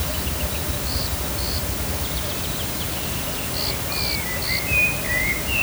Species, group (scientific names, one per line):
Eumodicogryllus bordigalensis
Orthoptera